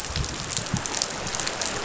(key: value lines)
label: biophony
recorder: SoundTrap 500